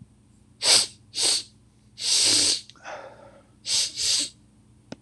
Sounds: Sniff